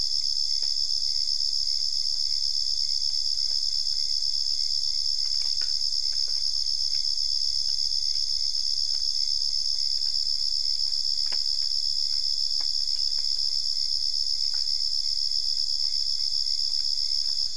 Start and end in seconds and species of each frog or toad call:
none
3:15am

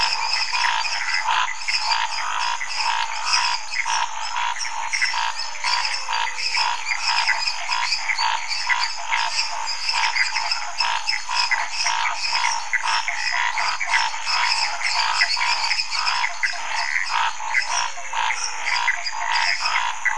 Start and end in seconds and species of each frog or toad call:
0.0	18.9	Dendropsophus nanus
0.0	20.1	Dendropsophus minutus
0.0	20.1	Pithecopus azureus
0.0	20.1	Scinax fuscovarius
3.7	5.6	Elachistocleis matogrosso
8.9	20.1	Physalaemus nattereri
11:15pm

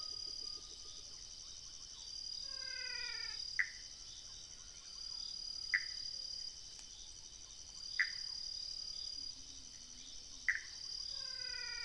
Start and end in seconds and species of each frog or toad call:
2.3	3.5	Physalaemus albonotatus
3.5	4.0	Pithecopus azureus
5.7	6.2	Pithecopus azureus
7.9	8.6	Pithecopus azureus
10.4	10.9	Pithecopus azureus
3:30am

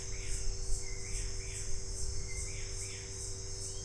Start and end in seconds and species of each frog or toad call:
none
6:15pm

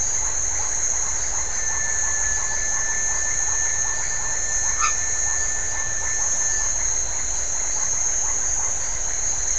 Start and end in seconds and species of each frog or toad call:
0.2	9.5	Leptodactylus notoaktites
4.6	5.2	Boana albomarginata
7:30pm

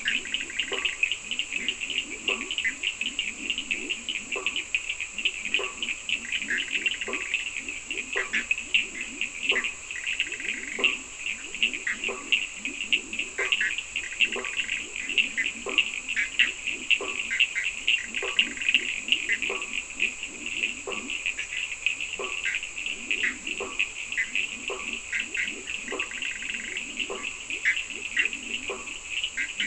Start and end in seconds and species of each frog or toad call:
0.0	3.1	Boana bischoffi
0.0	29.6	Boana faber
0.0	29.6	Leptodactylus latrans
0.0	29.6	Sphaenorhynchus surdus
6.3	19.6	Boana bischoffi
22.4	29.6	Boana bischoffi
4:00am

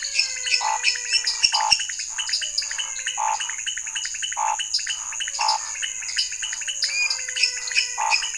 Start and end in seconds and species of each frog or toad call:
0.0	8.3	Dendropsophus nanus
0.0	8.3	Leptodactylus podicipinus
0.0	8.3	Physalaemus albonotatus
0.1	1.9	Dendropsophus minutus
0.1	8.3	Scinax fuscovarius
8:00pm

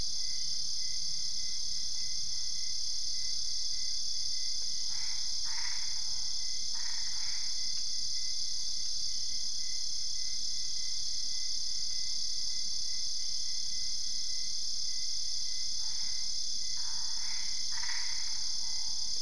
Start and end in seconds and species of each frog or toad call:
4.6	8.0	Boana albopunctata
15.4	19.2	Boana albopunctata
3:30am

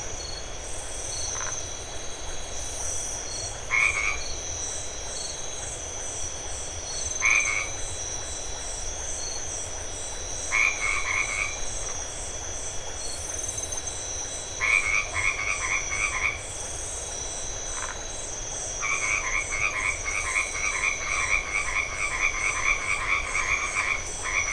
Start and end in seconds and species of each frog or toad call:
1.3	1.6	Phyllomedusa distincta
3.6	4.3	Boana albomarginata
4.8	14.5	Leptodactylus notoaktites
7.2	7.8	Boana albomarginata
10.5	11.5	Boana albomarginata
14.5	16.4	Boana albomarginata
17.7	18.0	Phyllomedusa distincta
18.8	24.5	Boana albomarginata
8:30pm

